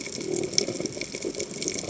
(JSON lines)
{"label": "biophony", "recorder": "HydroMoth"}